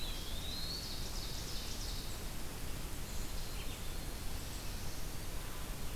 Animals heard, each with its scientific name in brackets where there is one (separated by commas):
Eastern Wood-Pewee (Contopus virens), Ovenbird (Seiurus aurocapilla), Black-throated Blue Warbler (Setophaga caerulescens), Golden-crowned Kinglet (Regulus satrapa)